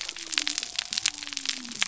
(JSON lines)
{"label": "biophony", "recorder": "SoundTrap 300"}